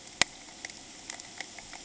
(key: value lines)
label: ambient
recorder: HydroMoth